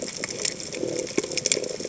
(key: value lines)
label: biophony
recorder: HydroMoth